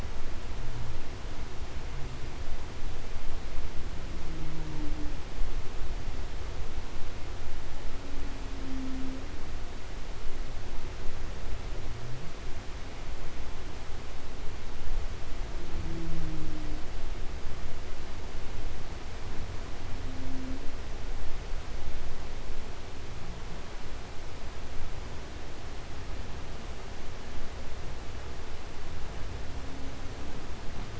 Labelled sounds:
3.9	5.4	humpback whale, 0.02 to 0.76 kHz
7.7	9.4	humpback whale, 0.09 to 0.69 kHz
15.3	17.0	humpback whale, 0.07 to 0.80 kHz
19.7	20.9	humpback whale, 0.07 to 0.58 kHz

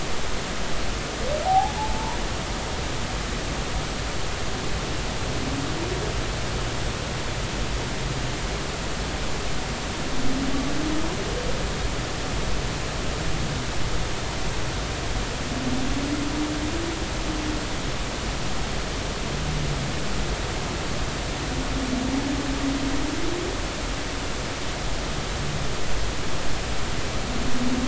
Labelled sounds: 1.4	1.8	humpback whale, 0.80 to 0.93 kHz

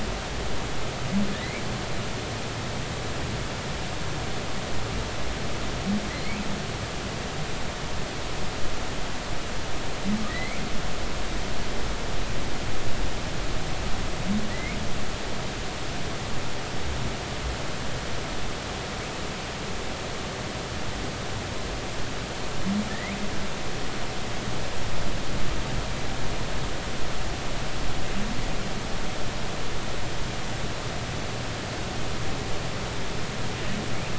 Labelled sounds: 1.3	1.6	humpback whale, 1.7 to 2.4 kHz
6.1	6.4	humpback whale, 4.1 to 4.5 kHz
10.3	10.6	humpback whale, 1.8 to 2.4 kHz
14.5	14.8	humpback whale, 1.9 to 2.5 kHz
22.9	23.1	humpback whale, 1.7 to 2.2 kHz

